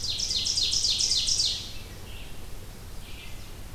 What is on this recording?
Ovenbird, Red-eyed Vireo